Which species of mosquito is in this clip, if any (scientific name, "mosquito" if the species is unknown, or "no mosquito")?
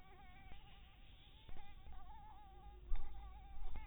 Anopheles dirus